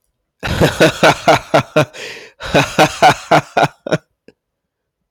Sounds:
Laughter